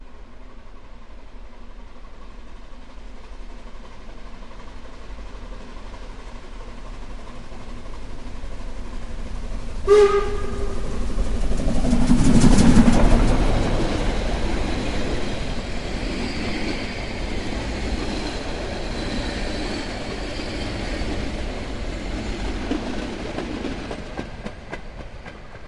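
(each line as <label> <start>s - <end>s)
A long steam train passes by. 0.0s - 25.7s
A train whistle blows. 9.8s - 10.4s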